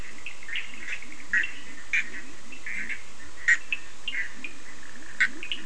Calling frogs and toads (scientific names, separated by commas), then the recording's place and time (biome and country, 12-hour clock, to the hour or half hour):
Boana bischoffi, Leptodactylus latrans, Sphaenorhynchus surdus
Atlantic Forest, Brazil, ~3am